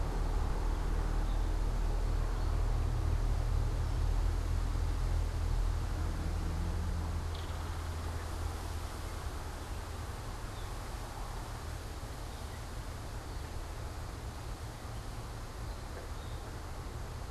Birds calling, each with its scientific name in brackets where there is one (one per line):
Belted Kingfisher (Megaceryle alcyon)
Gray Catbird (Dumetella carolinensis)